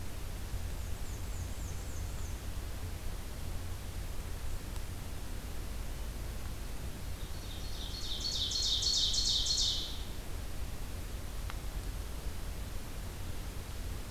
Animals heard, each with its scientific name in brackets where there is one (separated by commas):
Ovenbird (Seiurus aurocapilla), Black-and-white Warbler (Mniotilta varia)